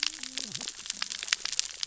{"label": "biophony, cascading saw", "recorder": "SoundTrap 600 or HydroMoth"}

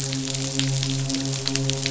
{"label": "biophony, midshipman", "recorder": "SoundTrap 500"}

